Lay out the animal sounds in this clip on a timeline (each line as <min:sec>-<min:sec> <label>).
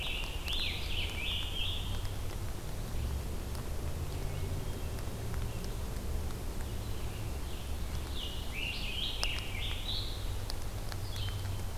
0:00.0-0:02.2 Scarlet Tanager (Piranga olivacea)
0:00.0-0:11.8 Red-eyed Vireo (Vireo olivaceus)
0:04.3-0:05.5 Hermit Thrush (Catharus guttatus)
0:07.7-0:10.4 Scarlet Tanager (Piranga olivacea)
0:11.2-0:11.8 Hermit Thrush (Catharus guttatus)